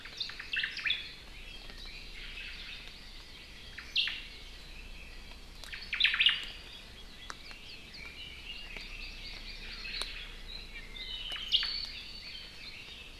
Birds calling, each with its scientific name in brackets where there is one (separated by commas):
Omao (Myadestes obscurus), Hawaii Amakihi (Chlorodrepanis virens), Red-billed Leiothrix (Leiothrix lutea), Apapane (Himatione sanguinea)